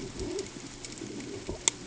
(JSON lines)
{"label": "ambient", "recorder": "HydroMoth"}